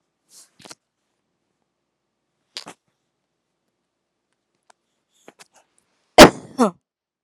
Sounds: Cough